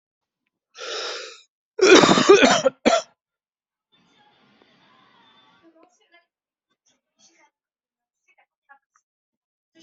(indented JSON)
{
  "expert_labels": [
    {
      "quality": "good",
      "cough_type": "wet",
      "dyspnea": false,
      "wheezing": false,
      "stridor": false,
      "choking": false,
      "congestion": false,
      "nothing": true,
      "diagnosis": "lower respiratory tract infection",
      "severity": "mild"
    }
  ],
  "age": 44,
  "gender": "male",
  "respiratory_condition": false,
  "fever_muscle_pain": true,
  "status": "symptomatic"
}